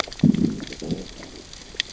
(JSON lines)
{"label": "biophony, growl", "recorder": "SoundTrap 600 or HydroMoth"}